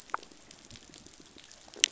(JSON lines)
{"label": "biophony, rattle response", "recorder": "SoundTrap 500"}